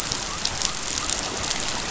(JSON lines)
{"label": "biophony", "recorder": "SoundTrap 500"}